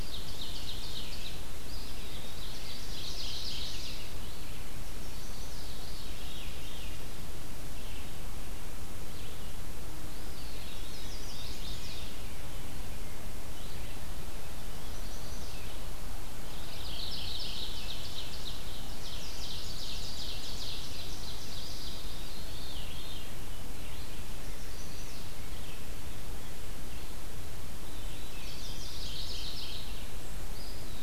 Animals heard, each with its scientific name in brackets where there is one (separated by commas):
Ovenbird (Seiurus aurocapilla), Mourning Warbler (Geothlypis philadelphia), Chestnut-sided Warbler (Setophaga pensylvanica), Veery (Catharus fuscescens), Red-eyed Vireo (Vireo olivaceus), Eastern Wood-Pewee (Contopus virens)